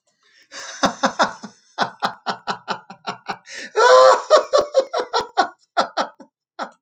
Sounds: Laughter